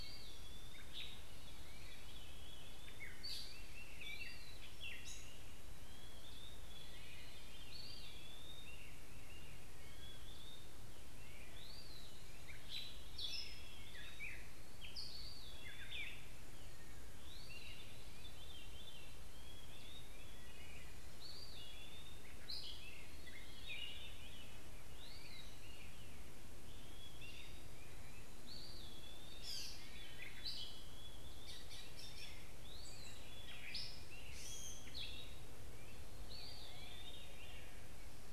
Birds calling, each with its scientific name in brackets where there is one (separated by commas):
Gray Catbird (Dumetella carolinensis), Veery (Catharus fuscescens), Eastern Wood-Pewee (Contopus virens)